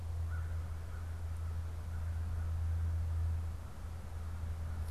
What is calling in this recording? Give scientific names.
Corvus brachyrhynchos